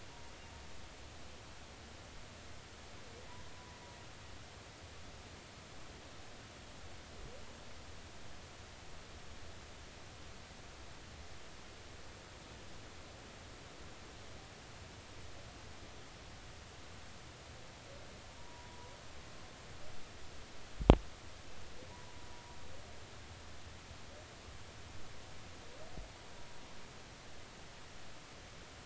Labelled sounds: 18.4	18.9	humpback whale, 0.93 to 1.0 kHz
21.9	22.2	humpback whale, 0.86 to 1.0 kHz

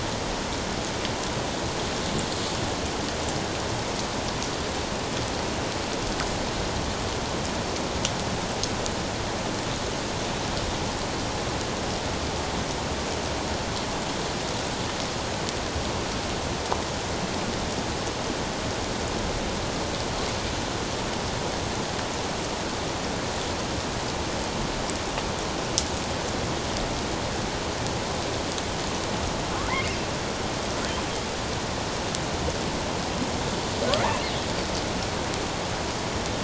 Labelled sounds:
29.7	30.0	killer whale, offshore, 1.8 to 2.3 kHz

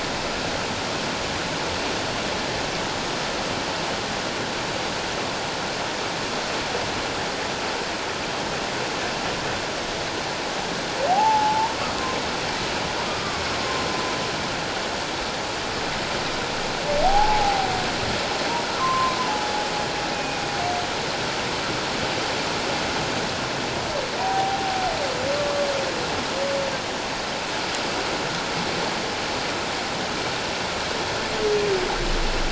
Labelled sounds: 11.1	11.7	humpback whale, 0.78 to 1.0 kHz
13.1	13.4	humpback whale, 1.1 to 1.2 kHz
17.0	17.7	humpback whale, 0.78 to 0.91 kHz
18.7	19.2	humpback whale, 0.97 to 1.4 kHz
20.1	20.4	humpback whale, 2.3 to 2.6 kHz
24.2	24.6	humpback whale, 0.78 to 1.0 kHz
25.3	25.6	humpback whale, 1.1 to 1.2 kHz

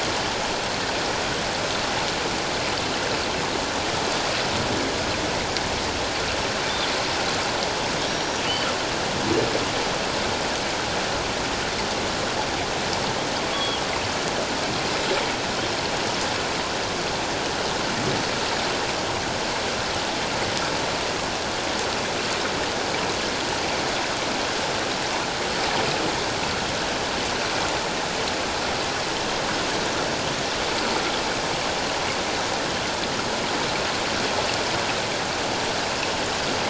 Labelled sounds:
8.0	8.4	killer whale, northern resident, G clan, 3.6 to 5.7 kHz
13.5	13.8	killer whale, northern resident, G clan, 3.0 to 3.4 kHz

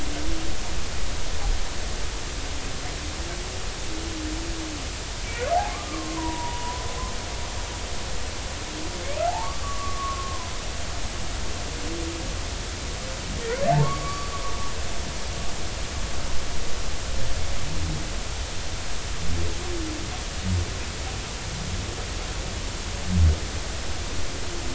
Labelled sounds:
5.9	6.8	humpback whale, 0.90 to 1.2 kHz
9.3	10.5	humpback whale, 0.80 to 1.2 kHz
13.8	14.3	humpback whale, 1.0 to 1.2 kHz

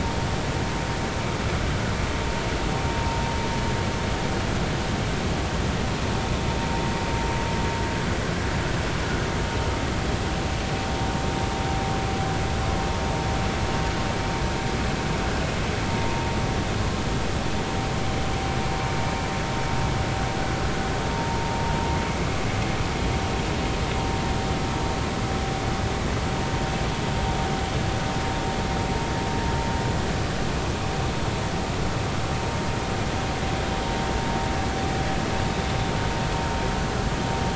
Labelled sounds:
21.1	21.4	vessel noise, 0.86 to 0.96 kHz

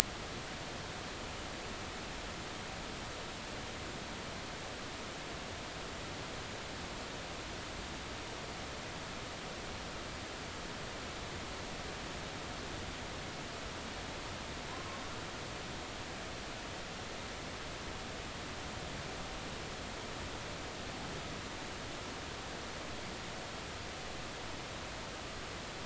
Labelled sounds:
14.7	15.0	humpback whale, 0.96 to 1.1 kHz

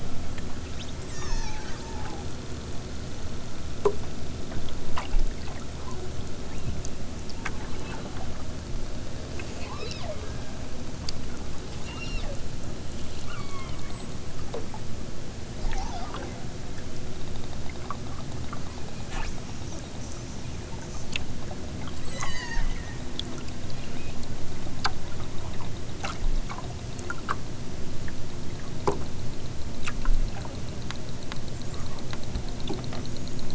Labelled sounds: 1.1	2.3	killer whale, southern Alaska resident, 0.51 to 7.0 kHz
6.4	6.8	killer whale, southern Alaska resident, 1.6 to 4.3 kHz
9.6	10.1	killer whale, southern Alaska resident, 0.69 to 5.8 kHz
11.8	12.4	killer whale, southern Alaska resident, 1.3 to 5.7 kHz
13.2	13.8	killer whale, southern Alaska resident, 0.78 to 3.7 kHz
15.6	16.4	killer whale, southern Alaska resident, 1.1 to 6.8 kHz
22.0	23.1	killer whale, southern Alaska resident, 0.92 to 8.0 kHz
23.7	24.2	killer whale, southern Alaska resident, 1.2 to 4.4 kHz

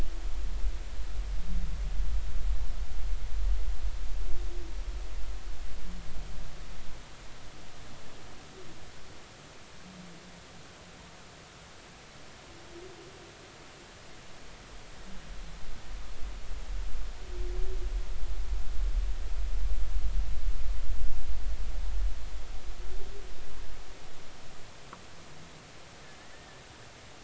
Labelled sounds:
26.3	26.6	humpback whale, 1.7 to 1.9 kHz

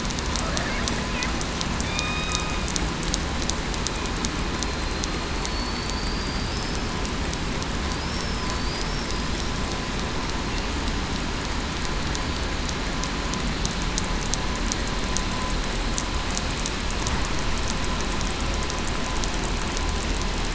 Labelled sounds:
1.8	2.5	killer whale, southern resident, 1.2 to 3.8 kHz
5.3	6.6	killer whale, southern resident, 4.3 to 4.8 kHz

